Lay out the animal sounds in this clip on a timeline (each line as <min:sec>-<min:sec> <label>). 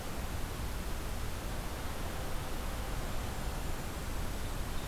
0:03.0-0:04.6 Golden-crowned Kinglet (Regulus satrapa)